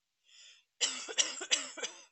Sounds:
Cough